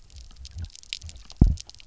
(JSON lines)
{"label": "biophony, double pulse", "recorder": "SoundTrap 300"}